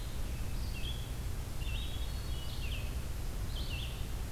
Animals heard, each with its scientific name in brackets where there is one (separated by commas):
Red-eyed Vireo (Vireo olivaceus), Hermit Thrush (Catharus guttatus)